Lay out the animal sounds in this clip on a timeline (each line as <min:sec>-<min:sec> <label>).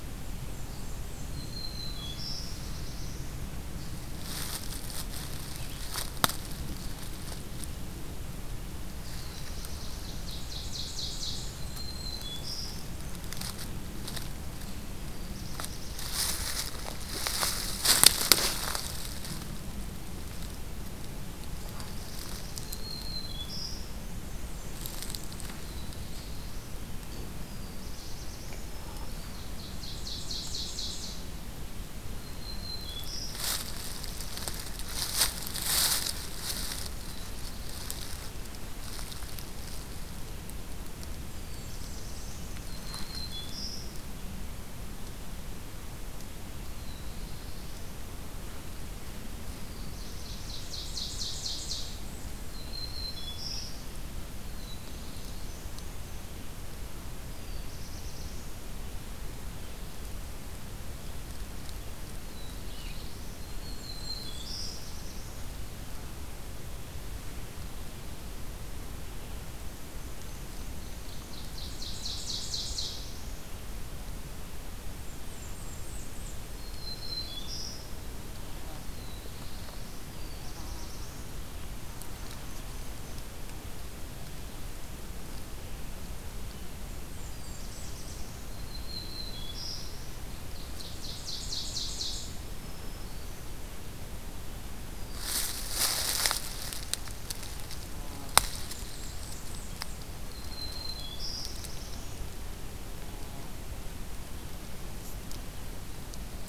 0:00.1-0:01.7 Blackburnian Warbler (Setophaga fusca)
0:01.1-0:02.7 Black-throated Green Warbler (Setophaga virens)
0:01.8-0:03.5 Black-throated Blue Warbler (Setophaga caerulescens)
0:09.2-0:10.1 Black-throated Blue Warbler (Setophaga caerulescens)
0:10.2-0:11.8 Ovenbird (Seiurus aurocapilla)
0:11.1-0:12.6 Blackburnian Warbler (Setophaga fusca)
0:11.4-0:13.0 Black-throated Green Warbler (Setophaga virens)
0:14.9-0:16.2 Black-throated Blue Warbler (Setophaga caerulescens)
0:21.4-0:22.9 Black-throated Blue Warbler (Setophaga caerulescens)
0:22.5-0:24.0 Black-throated Green Warbler (Setophaga virens)
0:24.3-0:25.8 Blackburnian Warbler (Setophaga fusca)
0:25.4-0:26.8 Black-throated Blue Warbler (Setophaga caerulescens)
0:27.2-0:28.8 Black-throated Blue Warbler (Setophaga caerulescens)
0:28.6-0:29.7 Black-throated Green Warbler (Setophaga virens)
0:29.1-0:31.6 Ovenbird (Seiurus aurocapilla)
0:32.0-0:33.6 Black-throated Green Warbler (Setophaga virens)
0:41.1-0:42.7 Black-throated Blue Warbler (Setophaga caerulescens)
0:41.2-0:42.6 Blackburnian Warbler (Setophaga fusca)
0:42.5-0:44.3 Black-throated Green Warbler (Setophaga virens)
0:46.7-0:48.2 Black-throated Blue Warbler (Setophaga caerulescens)
0:49.5-0:50.5 Black-throated Blue Warbler (Setophaga caerulescens)
0:50.1-0:52.3 Ovenbird (Seiurus aurocapilla)
0:52.5-0:54.1 Black-throated Green Warbler (Setophaga virens)
0:54.3-0:56.4 Blackburnian Warbler (Setophaga fusca)
0:54.4-0:55.6 Black-throated Blue Warbler (Setophaga caerulescens)
0:57.0-0:58.9 Black-throated Blue Warbler (Setophaga caerulescens)
1:02.0-1:03.5 Black-throated Blue Warbler (Setophaga caerulescens)
1:03.4-1:05.5 Black-throated Green Warbler (Setophaga virens)
1:03.6-1:04.8 Yellow-rumped Warbler (Setophaga coronata)
1:09.6-1:11.4 Blackburnian Warbler (Setophaga fusca)
1:10.7-1:13.3 Ovenbird (Seiurus aurocapilla)
1:14.9-1:16.5 Blackburnian Warbler (Setophaga fusca)
1:16.4-1:18.0 Black-throated Green Warbler (Setophaga virens)
1:18.8-1:21.4 Black-throated Blue Warbler (Setophaga caerulescens)
1:21.8-1:23.3 Yellow-rumped Warbler (Setophaga coronata)
1:26.9-1:28.3 Blackburnian Warbler (Setophaga fusca)
1:27.2-1:28.5 Black-throated Blue Warbler (Setophaga caerulescens)
1:28.5-1:30.1 Black-throated Green Warbler (Setophaga virens)
1:30.4-1:32.3 Ovenbird (Seiurus aurocapilla)
1:32.1-1:33.7 Black-throated Green Warbler (Setophaga virens)
1:38.4-1:40.1 Blackburnian Warbler (Setophaga fusca)
1:40.3-1:41.9 Black-throated Green Warbler (Setophaga virens)
1:40.9-1:42.3 Black-throated Blue Warbler (Setophaga caerulescens)